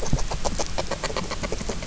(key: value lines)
label: biophony, grazing
recorder: SoundTrap 300